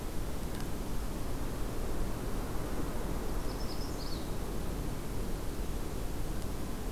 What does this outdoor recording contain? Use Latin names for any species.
Setophaga magnolia